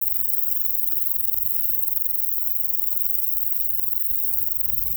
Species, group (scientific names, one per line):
Bicolorana bicolor
Orthoptera